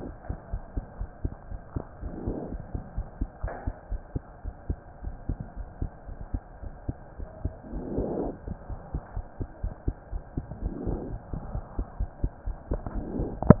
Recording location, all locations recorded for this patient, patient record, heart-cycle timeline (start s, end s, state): pulmonary valve (PV)
aortic valve (AV)+pulmonary valve (PV)+tricuspid valve (TV)+mitral valve (MV)
#Age: Child
#Sex: Male
#Height: 97.0 cm
#Weight: 17.0 kg
#Pregnancy status: False
#Murmur: Absent
#Murmur locations: nan
#Most audible location: nan
#Systolic murmur timing: nan
#Systolic murmur shape: nan
#Systolic murmur grading: nan
#Systolic murmur pitch: nan
#Systolic murmur quality: nan
#Diastolic murmur timing: nan
#Diastolic murmur shape: nan
#Diastolic murmur grading: nan
#Diastolic murmur pitch: nan
#Diastolic murmur quality: nan
#Outcome: Abnormal
#Campaign: 2015 screening campaign
0.00	0.50	unannotated
0.50	0.62	S1
0.62	0.74	systole
0.74	0.84	S2
0.84	0.98	diastole
0.98	1.08	S1
1.08	1.20	systole
1.20	1.32	S2
1.32	1.50	diastole
1.50	1.60	S1
1.60	1.72	systole
1.72	1.86	S2
1.86	2.02	diastole
2.02	2.14	S1
2.14	2.24	systole
2.24	2.38	S2
2.38	2.52	diastole
2.52	2.64	S1
2.64	2.72	systole
2.72	2.82	S2
2.82	2.96	diastole
2.96	3.06	S1
3.06	3.18	systole
3.18	3.28	S2
3.28	3.42	diastole
3.42	3.52	S1
3.52	3.64	systole
3.64	3.74	S2
3.74	3.90	diastole
3.90	4.00	S1
4.00	4.12	systole
4.12	4.26	S2
4.26	4.42	diastole
4.42	4.54	S1
4.54	4.66	systole
4.66	4.80	S2
4.80	5.02	diastole
5.02	5.14	S1
5.14	5.26	systole
5.26	5.38	S2
5.38	5.55	diastole
5.55	5.68	S1
5.68	5.78	systole
5.78	5.90	S2
5.90	6.05	diastole
6.05	6.18	S1
6.18	6.30	systole
6.30	6.42	S2
6.42	6.60	diastole
6.60	6.72	S1
6.72	6.84	systole
6.84	6.98	S2
6.98	7.17	diastole
7.17	7.28	S1
7.28	7.42	systole
7.42	7.56	S2
7.56	7.72	diastole
7.72	7.84	S1
7.84	7.92	systole
7.92	8.06	S2
8.06	8.22	diastole
8.22	8.34	S1
8.34	8.46	systole
8.46	8.56	S2
8.56	8.68	diastole
8.68	8.80	S1
8.80	8.92	systole
8.92	9.02	S2
9.02	9.14	diastole
9.14	9.26	S1
9.26	9.38	systole
9.38	9.48	S2
9.48	9.62	diastole
9.62	9.76	S1
9.76	9.85	systole
9.85	9.96	S2
9.96	10.09	diastole
10.09	10.22	S1
10.22	13.60	unannotated